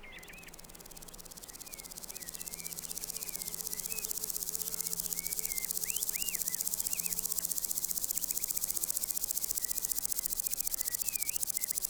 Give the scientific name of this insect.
Omocestus rufipes